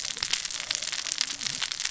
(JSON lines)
{"label": "biophony, cascading saw", "recorder": "SoundTrap 600 or HydroMoth"}